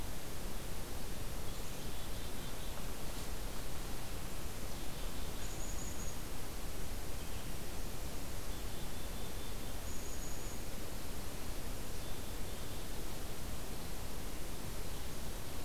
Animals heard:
unidentified call, Black-capped Chickadee (Poecile atricapillus)

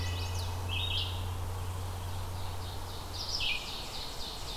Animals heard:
Wood Thrush (Hylocichla mustelina), Red-eyed Vireo (Vireo olivaceus), Chestnut-sided Warbler (Setophaga pensylvanica)

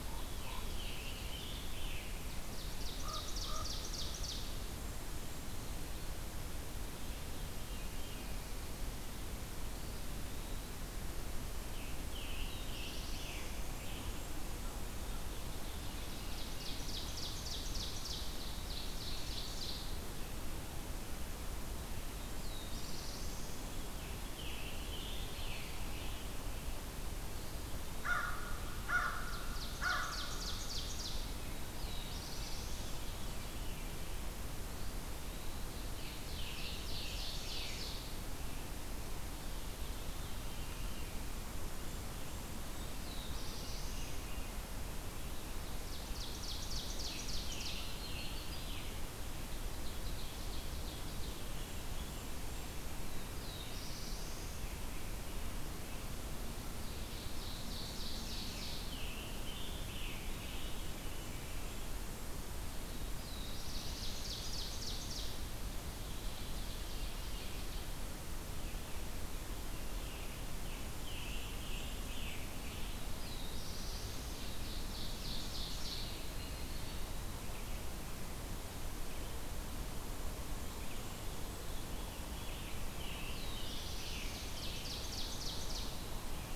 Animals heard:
Black-throated Blue Warbler (Setophaga caerulescens), Common Raven (Corvus corax), Eastern Wood-Pewee (Contopus virens), Ovenbird (Seiurus aurocapilla), Yellow-rumped Warbler (Setophaga coronata), Scarlet Tanager (Piranga olivacea), Blackburnian Warbler (Setophaga fusca), American Crow (Corvus brachyrhynchos), Red-eyed Vireo (Vireo olivaceus), Veery (Catharus fuscescens)

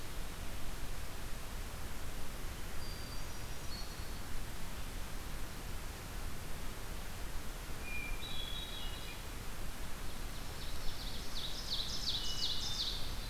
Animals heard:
Hermit Thrush (Catharus guttatus), Ovenbird (Seiurus aurocapilla)

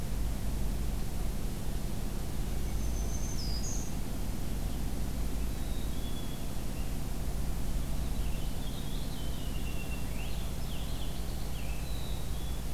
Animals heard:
Blue Jay (Cyanocitta cristata), Purple Finch (Haemorhous purpureus), Black-capped Chickadee (Poecile atricapillus), Black-throated Green Warbler (Setophaga virens)

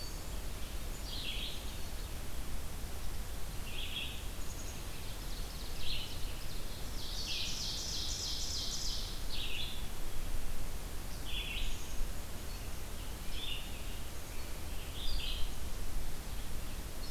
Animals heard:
Red-eyed Vireo (Vireo olivaceus), Ovenbird (Seiurus aurocapilla), Black-capped Chickadee (Poecile atricapillus)

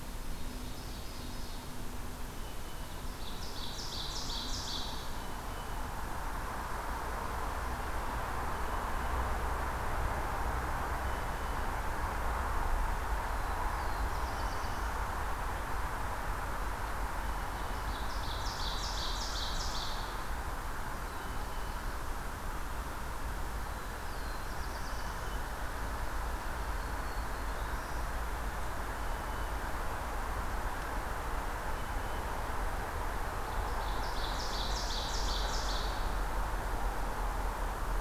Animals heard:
Black-throated Green Warbler (Setophaga virens), Black-throated Blue Warbler (Setophaga caerulescens), Ovenbird (Seiurus aurocapilla)

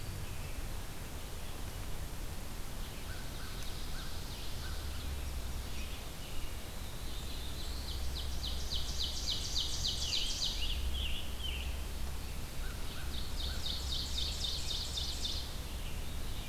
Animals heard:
Red-eyed Vireo (Vireo olivaceus), Black-throated Blue Warbler (Setophaga caerulescens), Scarlet Tanager (Piranga olivacea), American Crow (Corvus brachyrhynchos), Ovenbird (Seiurus aurocapilla)

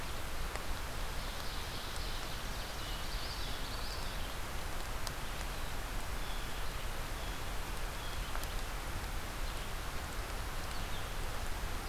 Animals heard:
Common Yellowthroat (Geothlypis trichas), Ovenbird (Seiurus aurocapilla), unidentified call, Blue Jay (Cyanocitta cristata), Hermit Thrush (Catharus guttatus)

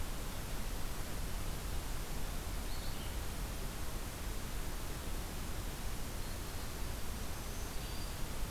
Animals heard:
Black-throated Green Warbler (Setophaga virens), Red-eyed Vireo (Vireo olivaceus)

